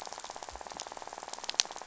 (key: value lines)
label: biophony, rattle
recorder: SoundTrap 500